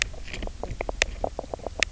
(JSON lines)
{"label": "biophony, knock croak", "recorder": "SoundTrap 300"}